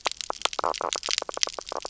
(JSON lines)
{"label": "biophony, knock croak", "recorder": "SoundTrap 300"}